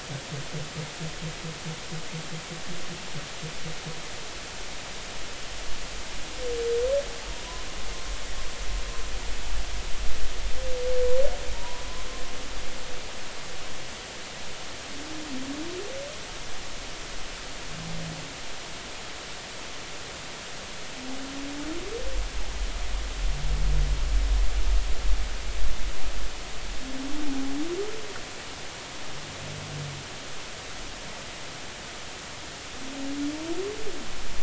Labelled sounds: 11.5	11.8	humpback whale, 0.86 to 1.1 kHz

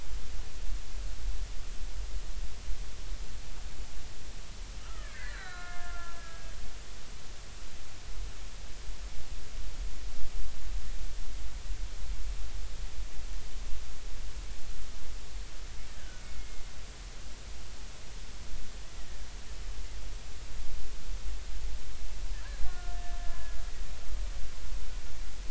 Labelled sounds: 4.8	6.6	killer whale, Bigg's (transient), 0.96 to 4.3 kHz
16.0	16.6	killer whale, Bigg's (transient), 1.4 to 2.2 kHz
22.6	23.0	killer whale, Bigg's (transient), 1.3 to 1.5 kHz
23.2	23.7	killer whale, Bigg's (transient), 1.6 to 1.8 kHz

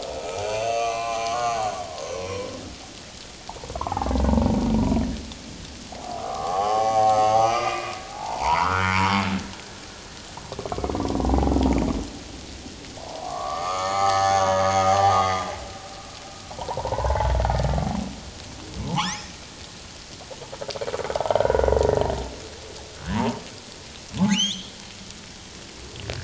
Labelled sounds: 1.2	1.6	humpback whale, 2.7 to 4.4 kHz
2.1	2.5	humpback whale, 5.4 to 6.0 kHz
3.9	5.0	humpback whale, 0.78 to 1.3 kHz
5.9	9.0	humpback whale, 0.78 to 6.2 kHz
9.6	9.9	humpback whale, 1.5 to 1.8 kHz
13.0	14.7	humpback whale, 0.78 to 6.5 kHz
15.0	16.0	humpback whale, 0.78 to 2.2 kHz
16.5	17.3	humpback whale, 0.81 to 1.7 kHz
18.9	19.2	humpback whale, 0.78 to 1.5 kHz
21.1	21.7	humpback whale, 0.78 to 1.6 kHz
23.1	23.4	humpback whale, 0.78 to 1.2 kHz
24.3	24.7	humpback whale, 1.9 to 6.7 kHz

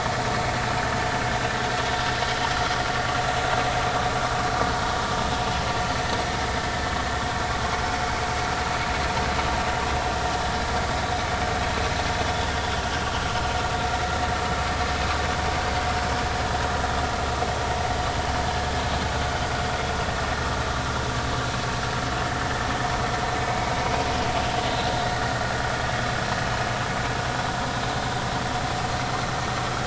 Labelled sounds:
2.2	2.5	vessel noise, 2.9 to 3.3 kHz

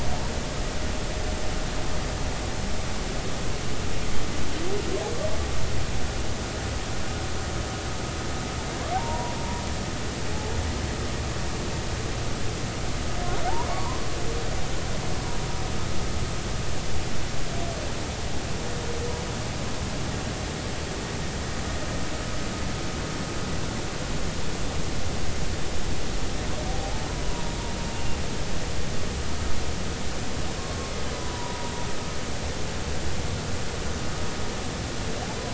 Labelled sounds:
8.9	9.6	humpback whale, 0.80 to 1.0 kHz
14.7	15.0	humpback whale, 0.90 to 1.2 kHz
27.7	28.2	humpback whale, 0.80 to 2.9 kHz
31.1	31.7	humpback whale, 0.90 to 1.0 kHz

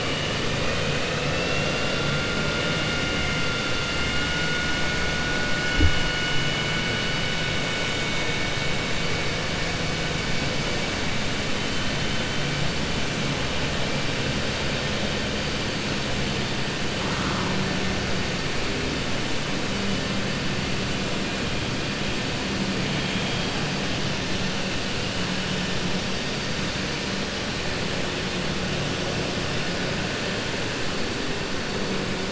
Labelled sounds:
0.5	2.1	vessel noise, 1.2 to 3.7 kHz
3.9	4.7	vessel noise, 1.4 to 3.6 kHz

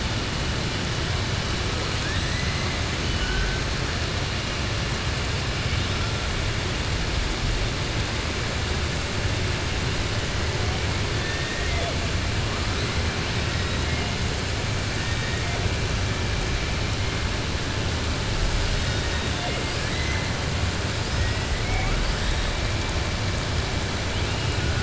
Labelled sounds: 2.0	2.7	killer whale, southern resident, 1.1 to 4.0 kHz

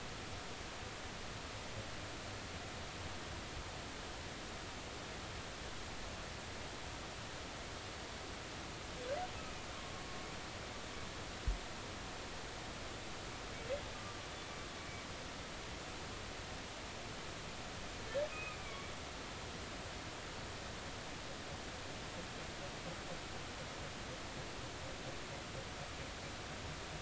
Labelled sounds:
13.9	14.2	humpback whale, 1.1 to 1.2 kHz
18.3	18.9	humpback whale, 2.2 to 2.6 kHz

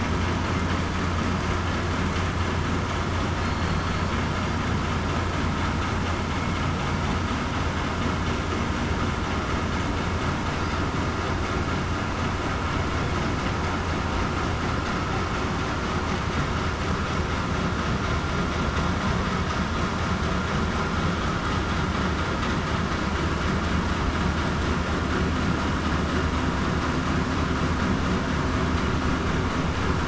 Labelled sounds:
3.4	3.9	killer whale, southern resident, 4.2 to 4.4 kHz

